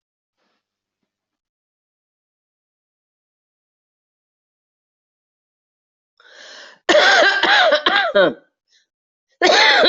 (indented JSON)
{
  "expert_labels": [
    {
      "quality": "good",
      "cough_type": "dry",
      "dyspnea": false,
      "wheezing": true,
      "stridor": false,
      "choking": false,
      "congestion": false,
      "nothing": true,
      "diagnosis": "COVID-19",
      "severity": "mild"
    }
  ],
  "age": 74,
  "gender": "female",
  "respiratory_condition": false,
  "fever_muscle_pain": false,
  "status": "COVID-19"
}